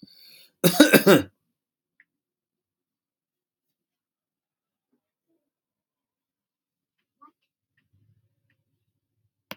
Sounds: Cough